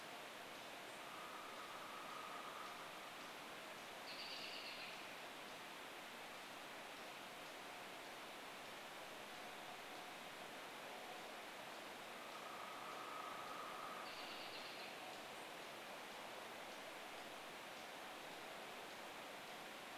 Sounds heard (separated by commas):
unidentified bird chip note, woodpecker drumming, American Robin call